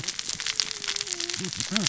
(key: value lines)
label: biophony, cascading saw
recorder: SoundTrap 600 or HydroMoth